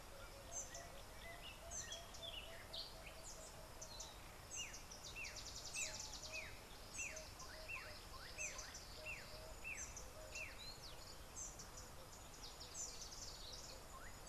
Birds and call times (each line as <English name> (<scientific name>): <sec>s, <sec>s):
Variable Sunbird (Cinnyris venustus): 5.7s